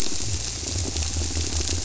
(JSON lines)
{"label": "biophony", "recorder": "SoundTrap 300"}